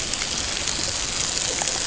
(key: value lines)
label: ambient
recorder: HydroMoth